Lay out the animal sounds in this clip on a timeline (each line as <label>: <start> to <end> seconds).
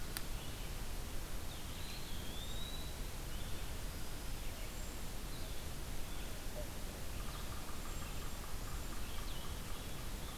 Blue-headed Vireo (Vireo solitarius): 0.0 to 10.4 seconds
Eastern Wood-Pewee (Contopus virens): 1.5 to 3.0 seconds
Cedar Waxwing (Bombycilla cedrorum): 4.5 to 5.2 seconds
Yellow-bellied Sapsucker (Sphyrapicus varius): 7.1 to 8.9 seconds
Cedar Waxwing (Bombycilla cedrorum): 7.7 to 9.1 seconds